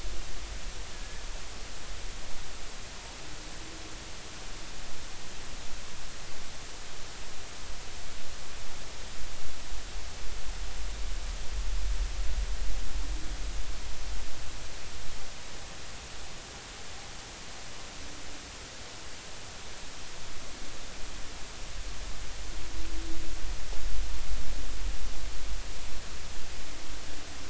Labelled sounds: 0.9	1.3	killer whale, 1.6 to 1.9 kHz

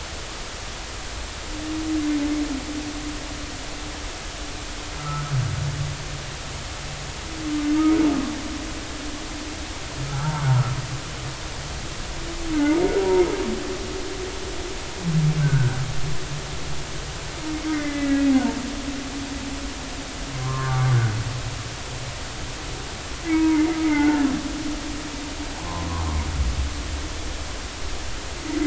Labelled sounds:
5.0	5.2	humpback whale, 1.2 to 1.4 kHz
10.1	10.5	humpback whale, 0.80 to 1.6 kHz
15.4	15.8	humpback whale, 1.3 to 1.6 kHz
17.7	18.3	humpback whale, 1.7 to 2.1 kHz
20.4	20.9	humpback whale, 0.99 to 1.2 kHz
23.3	24.2	humpback whale, 0.83 to 2.3 kHz
25.6	25.9	humpback whale, 0.83 to 1.1 kHz

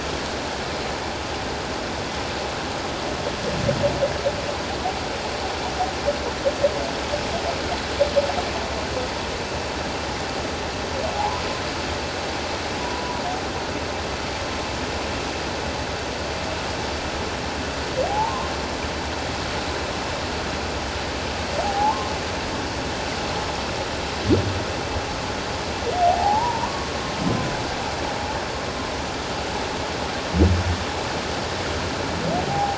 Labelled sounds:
11.1	11.4	humpback whale, 0.78 to 1.1 kHz
12.8	13.2	humpback whale, 0.91 to 1.0 kHz
18.0	18.3	humpback whale, 0.78 to 0.97 kHz
21.6	22.1	humpback whale, 0.78 to 1.1 kHz
26.1	26.9	humpback whale, 0.78 to 1.2 kHz
32.5	32.7	humpback whale, 0.78 to 0.88 kHz

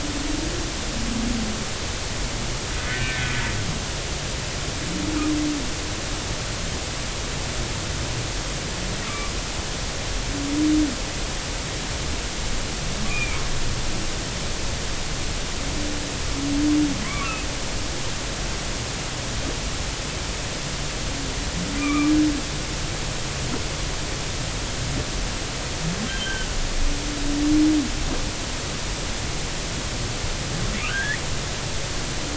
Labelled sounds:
2.8	3.2	humpback whale, 1.4 to 2.2 kHz
9.0	9.3	humpback whale, 1.1 to 1.4 kHz
13.1	13.4	humpback whale, 2.1 to 2.6 kHz
17.0	17.3	humpback whale, 0.99 to 1.3 kHz
21.8	22.1	humpback whale, 1.1 to 2.5 kHz
26.1	26.6	humpback whale, 1.4 to 3.2 kHz
30.9	31.2	humpback whale, 1.4 to 2.0 kHz

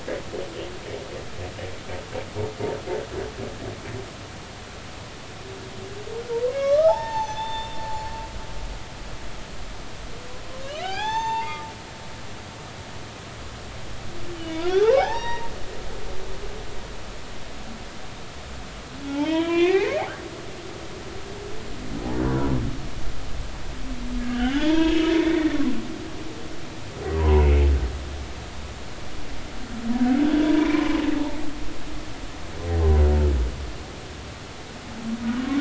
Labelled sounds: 6.5	8.1	humpback whale, 0.80 to 6.3 kHz
10.8	11.6	humpback whale, 0.80 to 6.4 kHz
14.3	15.5	humpback whale, 0.80 to 5.8 kHz
19.1	20.0	humpback whale, 0.80 to 3.4 kHz
24.2	25.6	humpback whale, 0.80 to 3.6 kHz
27.2	27.5	humpback whale, 0.86 to 1.1 kHz
30.6	31.0	humpback whale, 0.90 to 1.1 kHz

